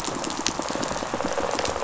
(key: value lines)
label: biophony, rattle response
recorder: SoundTrap 500